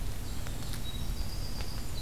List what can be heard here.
Winter Wren, Golden-crowned Kinglet